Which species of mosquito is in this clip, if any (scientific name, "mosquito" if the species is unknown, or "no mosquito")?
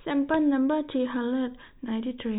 no mosquito